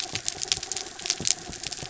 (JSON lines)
{"label": "anthrophony, mechanical", "recorder": "SoundTrap 300"}